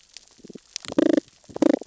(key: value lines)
label: biophony, damselfish
recorder: SoundTrap 600 or HydroMoth